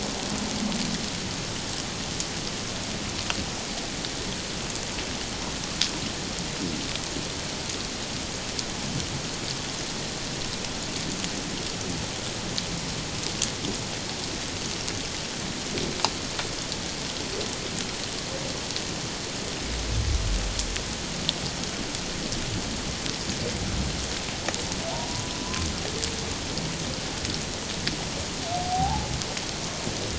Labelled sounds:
28.5	29.1	humpback whale, 0.78 to 0.94 kHz

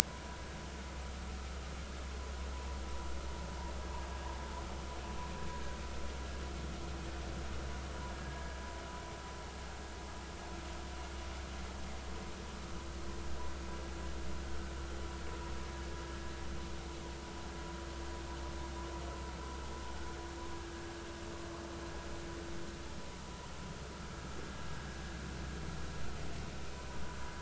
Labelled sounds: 8.1	8.6	vessel noise, 1.6 to 1.7 kHz
20.5	20.8	vessel noise, 1.5 to 1.7 kHz

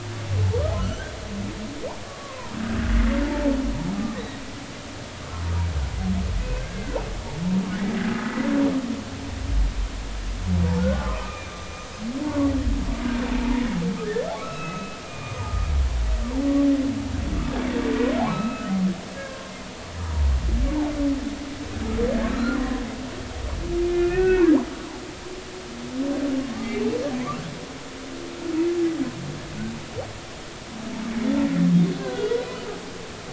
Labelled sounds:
0.8	1.1	humpback whale, 1.2 to 3.4 kHz
2.1	2.5	humpback whale, 0.90 to 1.2 kHz
3.2	4.4	humpback whale, 0.83 to 2.0 kHz
6.5	7.0	humpback whale, 1.4 to 2.2 kHz
8.1	8.3	humpback whale, 1.2 to 1.4 kHz
10.8	11.9	humpback whale, 1.0 to 6.1 kHz
12.3	12.5	humpback whale, 0.96 to 1.2 kHz
13.4	15.7	humpback whale, 0.86 to 2.8 kHz
18.3	19.5	humpback whale, 1.0 to 4.0 kHz
20.0	20.3	humpback whale, 0.86 to 0.99 kHz
22.3	22.8	humpback whale, 0.96 to 1.5 kHz
23.8	24.5	humpback whale, 1.3 to 2.7 kHz
26.4	26.8	humpback whale, 1.0 to 1.3 kHz
32.0	32.4	humpback whale, 1.2 to 3.4 kHz

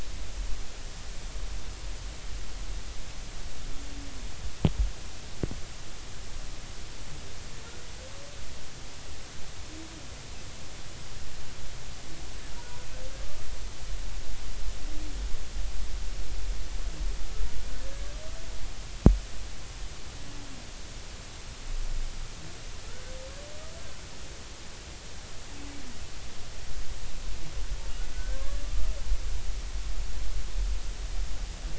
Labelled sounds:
17.8	18.1	humpback whale, 1.6 to 1.8 kHz
28.1	28.6	humpback whale, 1.0 to 1.7 kHz

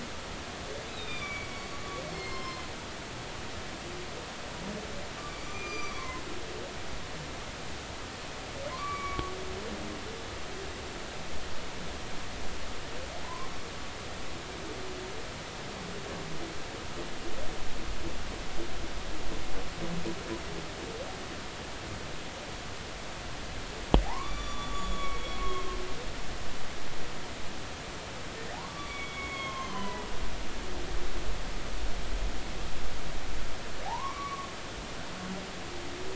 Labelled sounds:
0.9	1.7	humpback whale, 2.2 to 4.0 kHz
2.1	2.7	humpback whale, 0.96 to 5.3 kHz
5.5	6.2	humpback whale, 0.96 to 6.0 kHz
8.7	9.3	humpback whale, 0.96 to 2.4 kHz
13.2	13.5	humpback whale, 0.93 to 1.2 kHz
24.1	25.8	humpback whale, 0.80 to 7.0 kHz
28.5	30.1	humpback whale, 0.80 to 5.9 kHz
33.8	34.5	humpback whale, 0.80 to 2.3 kHz

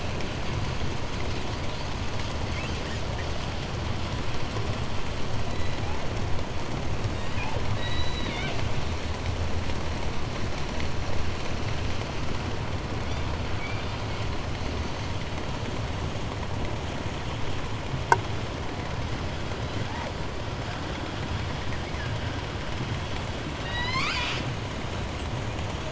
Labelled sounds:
0.0	3.4	killer whale, southern resident, call S10, 1.4 to 6.9 kHz
5.4	6.1	killer whale, southern resident, J pod, call S01, 1.5 to 5.5 kHz
6.9	8.8	killer whale, southern resident, J pod, call S01, 0.99 to 8.0 kHz
13.0	14.4	killer whale, 1.3 to 8.0 kHz
18.1	18.2	abiotic sound, 0.11 to 8.0 kHz
19.6	20.2	killer whale, 0.39 to 4.4 kHz
20.5	22.8	killer whale, southern resident, 1.2 to 5.8 kHz
23.5	24.6	killer whale, southern resident, J pod, call S01, 0.61 to 8.0 kHz
24.9	25.8	killer whale, 7.2 to 8.0 kHz

